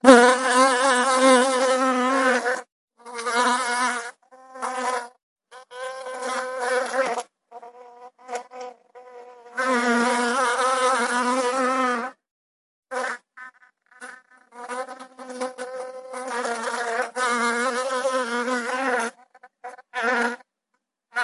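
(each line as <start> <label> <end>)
0.0 A bee buzzes with a high-pitched tone that shifts to a constant tone while flying. 2.7
3.0 A bee makes a long, continuous buzzing sound with a brief pause followed by an extended buzz. 12.2
12.9 A bee buzzes continuously with low intensity and slight irregularity. 20.4
20.8 A bee makes a very short, high-pitched buzzing sound that cuts off suddenly. 21.2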